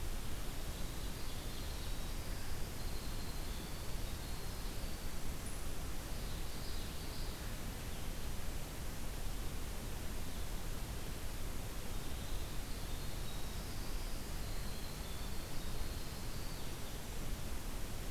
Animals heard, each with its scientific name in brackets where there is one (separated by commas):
Winter Wren (Troglodytes hiemalis), Common Yellowthroat (Geothlypis trichas)